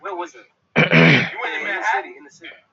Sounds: Throat clearing